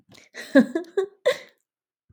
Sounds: Laughter